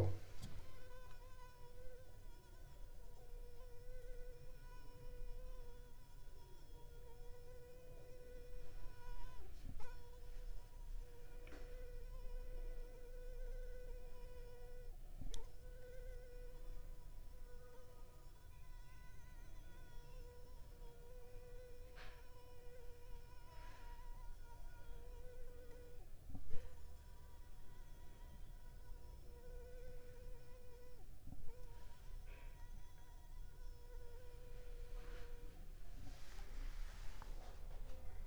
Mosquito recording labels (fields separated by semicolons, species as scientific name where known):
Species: Anopheles arabiensis; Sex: female; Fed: unfed; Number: one; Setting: cup